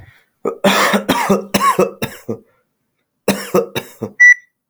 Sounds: Cough